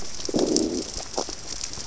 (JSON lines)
{"label": "biophony, growl", "recorder": "SoundTrap 600 or HydroMoth"}